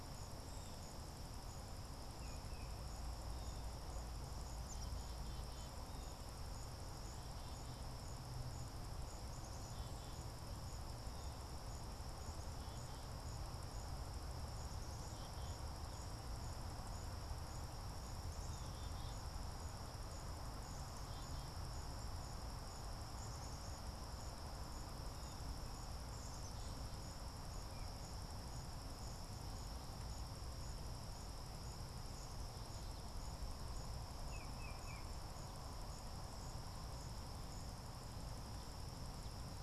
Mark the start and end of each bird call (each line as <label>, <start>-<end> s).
Black-capped Chickadee (Poecile atricapillus), 0.0-27.2 s
Tufted Titmouse (Baeolophus bicolor), 34.1-35.2 s